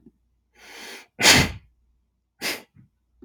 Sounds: Sneeze